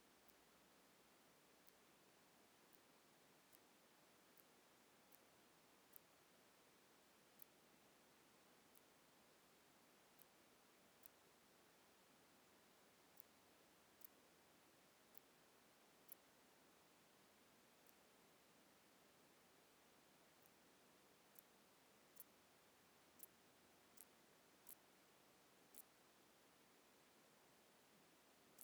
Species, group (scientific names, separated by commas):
Ctenodecticus major, Orthoptera